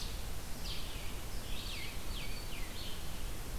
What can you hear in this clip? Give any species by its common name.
Red-eyed Vireo, unidentified call